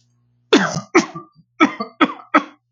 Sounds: Throat clearing